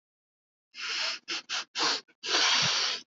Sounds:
Sniff